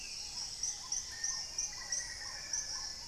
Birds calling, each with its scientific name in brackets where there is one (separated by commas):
Dusky-capped Greenlet (Pachysylvia hypoxantha), Black-tailed Trogon (Trogon melanurus), Hauxwell's Thrush (Turdus hauxwelli), Paradise Tanager (Tangara chilensis), Plumbeous Pigeon (Patagioenas plumbea), Black-faced Antthrush (Formicarius analis)